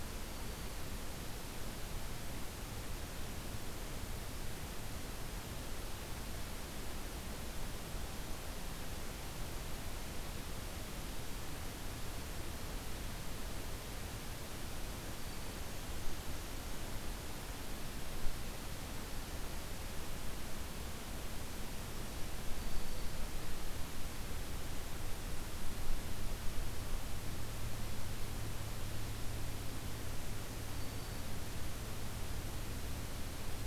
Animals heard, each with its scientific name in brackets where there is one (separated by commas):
Blackburnian Warbler (Setophaga fusca), Black-throated Green Warbler (Setophaga virens)